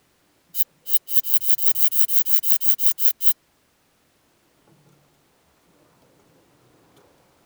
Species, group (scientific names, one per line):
Phaneroptera falcata
Orthoptera